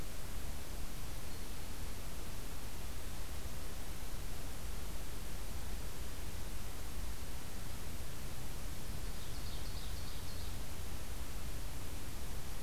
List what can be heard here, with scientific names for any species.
Seiurus aurocapilla